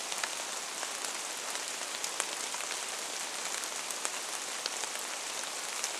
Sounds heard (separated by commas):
rain